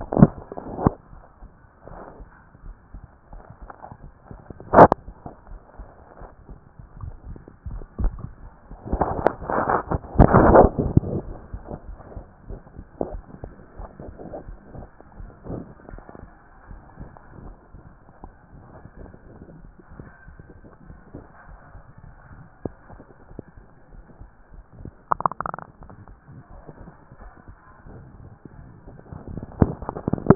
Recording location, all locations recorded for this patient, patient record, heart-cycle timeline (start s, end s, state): mitral valve (MV)
aortic valve (AV)+pulmonary valve (PV)+tricuspid valve (TV)+mitral valve (MV)+mitral valve (MV)
#Age: Adolescent
#Sex: Female
#Height: 154.0 cm
#Weight: 44.2 kg
#Pregnancy status: False
#Murmur: Absent
#Murmur locations: nan
#Most audible location: nan
#Systolic murmur timing: nan
#Systolic murmur shape: nan
#Systolic murmur grading: nan
#Systolic murmur pitch: nan
#Systolic murmur quality: nan
#Diastolic murmur timing: nan
#Diastolic murmur shape: nan
#Diastolic murmur grading: nan
#Diastolic murmur pitch: nan
#Diastolic murmur quality: nan
#Outcome: Abnormal
#Campaign: 2014 screening campaign
0.00	11.32	unannotated
11.32	11.34	S1
11.34	11.52	systole
11.52	11.60	S2
11.60	11.88	diastole
11.88	11.98	S1
11.98	12.14	systole
12.14	12.24	S2
12.24	12.48	diastole
12.48	12.60	S1
12.60	12.76	systole
12.76	12.86	S2
12.86	13.10	diastole
13.10	13.22	S1
13.22	13.42	systole
13.42	13.52	S2
13.52	13.78	diastole
13.78	13.90	S1
13.90	14.02	systole
14.02	14.12	S2
14.12	14.46	diastole
14.46	14.58	S1
14.58	14.76	systole
14.76	14.86	S2
14.86	15.24	diastole
15.24	15.30	S1
15.30	15.48	systole
15.48	15.66	S2
15.66	15.92	diastole
15.92	16.02	S1
16.02	16.20	systole
16.20	16.28	S2
16.28	16.70	diastole
16.70	16.82	S1
16.82	17.00	systole
17.00	17.10	S2
17.10	17.42	diastole
17.42	17.54	S1
17.54	17.74	systole
17.74	17.84	S2
17.84	18.24	diastole
18.24	18.34	S1
18.34	18.52	systole
18.52	18.62	S2
18.62	18.98	diastole
18.98	19.10	S1
19.10	19.28	systole
19.28	19.36	S2
19.36	19.56	diastole
19.56	19.70	S1
19.70	19.94	systole
19.94	19.97	S2
19.97	30.35	unannotated